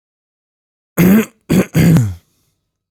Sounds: Throat clearing